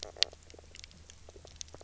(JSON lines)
{"label": "biophony, knock croak", "recorder": "SoundTrap 300"}